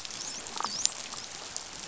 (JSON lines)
{"label": "biophony, dolphin", "recorder": "SoundTrap 500"}